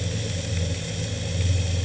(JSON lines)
{"label": "anthrophony, boat engine", "recorder": "HydroMoth"}